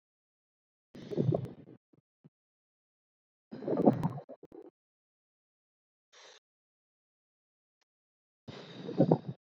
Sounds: Sigh